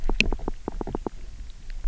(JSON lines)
{"label": "biophony, knock", "recorder": "SoundTrap 300"}